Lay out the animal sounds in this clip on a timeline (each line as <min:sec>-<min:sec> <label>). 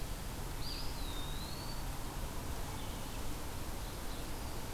0:00.3-0:01.8 Eastern Wood-Pewee (Contopus virens)